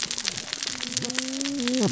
{"label": "biophony, cascading saw", "recorder": "SoundTrap 600 or HydroMoth"}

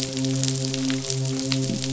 {"label": "biophony", "recorder": "SoundTrap 500"}
{"label": "biophony, midshipman", "recorder": "SoundTrap 500"}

